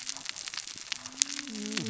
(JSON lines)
{"label": "biophony, cascading saw", "recorder": "SoundTrap 600 or HydroMoth"}